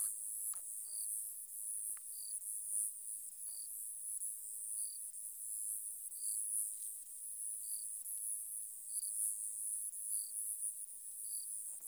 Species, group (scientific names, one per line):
Neoconocephalus triops
Orthoptera